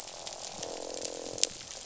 {"label": "biophony, croak", "recorder": "SoundTrap 500"}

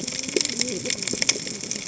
{"label": "biophony, cascading saw", "recorder": "HydroMoth"}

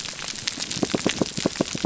{"label": "biophony", "recorder": "SoundTrap 300"}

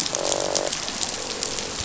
{"label": "biophony, croak", "recorder": "SoundTrap 500"}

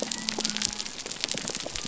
{"label": "biophony", "recorder": "SoundTrap 300"}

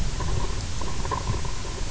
{"label": "anthrophony, boat engine", "recorder": "SoundTrap 300"}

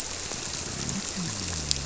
{"label": "biophony", "recorder": "SoundTrap 300"}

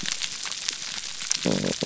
{"label": "biophony", "recorder": "SoundTrap 300"}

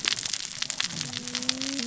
{"label": "biophony, cascading saw", "recorder": "SoundTrap 600 or HydroMoth"}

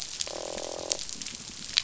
{"label": "biophony, croak", "recorder": "SoundTrap 500"}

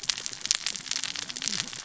{"label": "biophony, cascading saw", "recorder": "SoundTrap 600 or HydroMoth"}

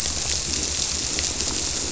{"label": "biophony", "recorder": "SoundTrap 300"}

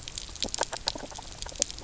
{"label": "biophony, knock croak", "recorder": "SoundTrap 300"}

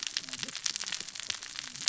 {"label": "biophony, cascading saw", "recorder": "SoundTrap 600 or HydroMoth"}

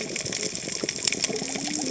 {"label": "biophony, cascading saw", "recorder": "HydroMoth"}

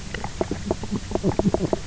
{"label": "biophony, knock croak", "recorder": "SoundTrap 300"}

